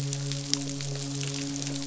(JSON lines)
{"label": "biophony, midshipman", "recorder": "SoundTrap 500"}